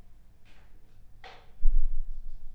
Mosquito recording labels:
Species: Anopheles arabiensis; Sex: female; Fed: unfed; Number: one; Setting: cup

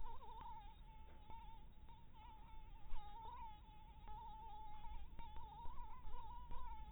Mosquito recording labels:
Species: Anopheles dirus; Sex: female; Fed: blood-fed; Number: one; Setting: cup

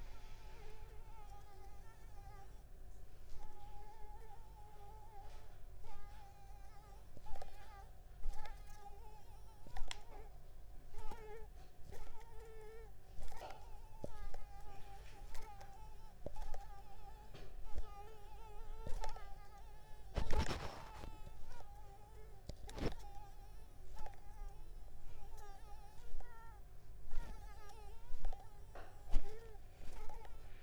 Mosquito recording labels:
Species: Mansonia uniformis; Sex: female; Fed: unfed; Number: one; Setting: cup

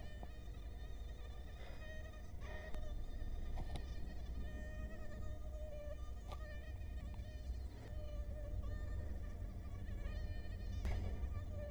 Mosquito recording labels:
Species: Culex quinquefasciatus; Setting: cup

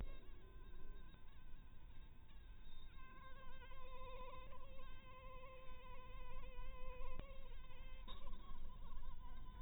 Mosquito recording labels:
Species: mosquito; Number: one; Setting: cup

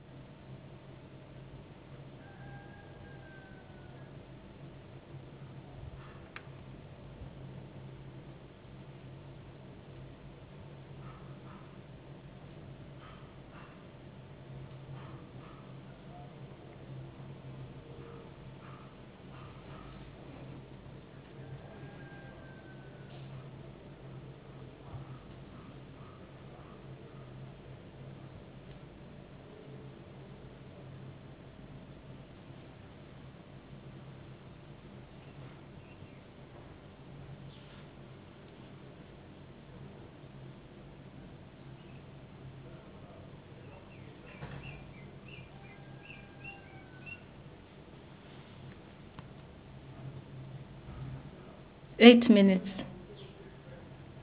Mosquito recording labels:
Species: no mosquito; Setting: insect culture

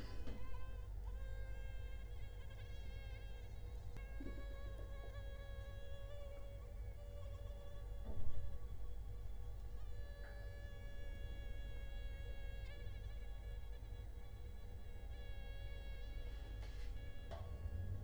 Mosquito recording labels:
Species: Culex quinquefasciatus; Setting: cup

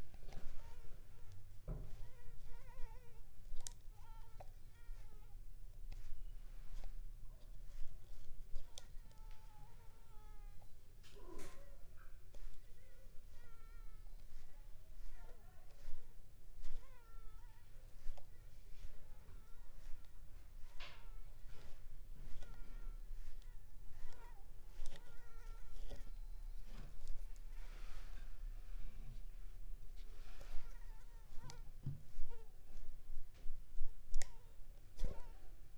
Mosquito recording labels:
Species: Anopheles ziemanni; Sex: female; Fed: unfed; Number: one; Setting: cup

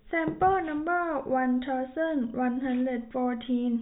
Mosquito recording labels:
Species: no mosquito; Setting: cup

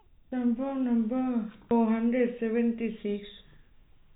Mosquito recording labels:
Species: no mosquito; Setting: cup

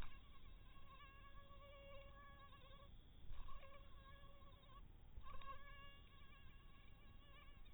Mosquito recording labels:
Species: mosquito; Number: one; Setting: cup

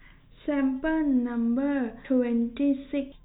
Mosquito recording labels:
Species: no mosquito; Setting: cup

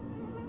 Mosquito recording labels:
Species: Anopheles albimanus; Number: several; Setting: insect culture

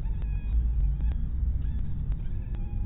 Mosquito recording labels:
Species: mosquito; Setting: cup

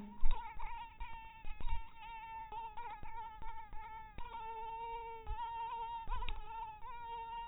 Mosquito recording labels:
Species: mosquito; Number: one; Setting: cup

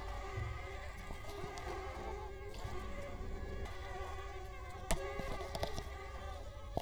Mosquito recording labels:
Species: Culex quinquefasciatus; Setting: cup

